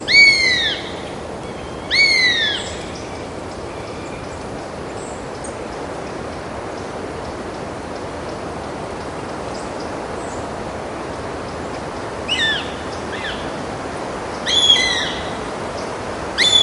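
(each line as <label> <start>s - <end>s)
A distant loud rushing water sound. 0.0s - 16.6s
A bird rings loudly and repeatedly, with the sound fading. 0.1s - 3.1s
Quiet, rhythmic singing of birds in the distance. 3.6s - 13.5s
A bird cries loudly and repeatedly in the distance, with the sound fading gradually. 12.3s - 15.3s
Quiet, rhythmic singing of birds in the distance. 15.3s - 16.3s
A bird crying loudly with a ringing, fading sound. 16.4s - 16.6s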